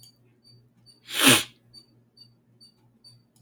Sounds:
Sniff